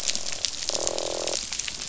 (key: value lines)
label: biophony, croak
recorder: SoundTrap 500